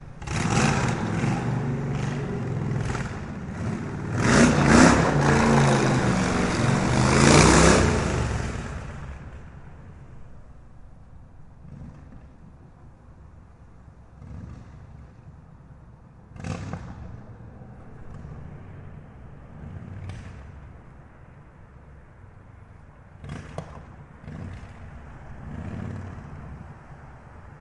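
0.0s A motor engine running loudly. 9.4s
9.4s Silence with a motor engine occasionally heard at a very low volume. 27.6s

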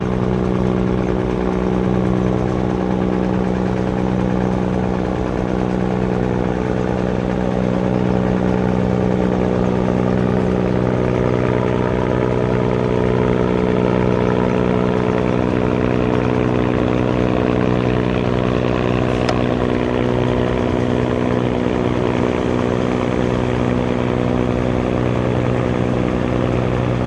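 0.0s Helicopter engine noise. 27.1s

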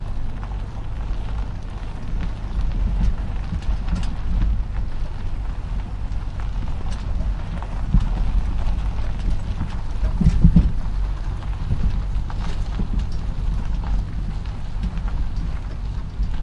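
0.0s A car drives over a bumpy gravel road. 16.4s

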